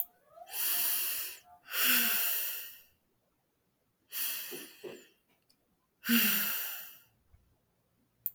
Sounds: Sigh